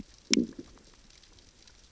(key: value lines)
label: biophony, growl
recorder: SoundTrap 600 or HydroMoth